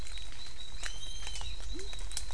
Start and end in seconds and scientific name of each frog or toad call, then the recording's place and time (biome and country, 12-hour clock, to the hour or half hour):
0.0	2.3	Adenomera diptyx
1.6	2.3	Leptodactylus labyrinthicus
Cerrado, Brazil, ~6pm